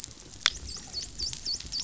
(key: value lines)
label: biophony, dolphin
recorder: SoundTrap 500